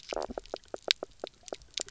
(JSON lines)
{"label": "biophony, knock croak", "recorder": "SoundTrap 300"}